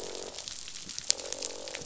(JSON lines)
{"label": "biophony, croak", "recorder": "SoundTrap 500"}